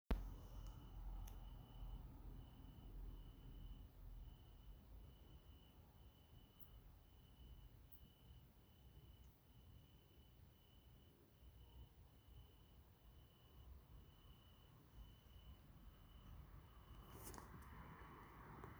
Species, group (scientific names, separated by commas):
Oecanthus pellucens, Orthoptera